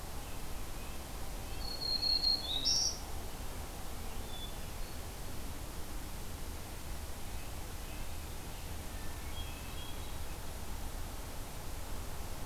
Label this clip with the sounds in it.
Red-breasted Nuthatch, Black-throated Green Warbler, Hermit Thrush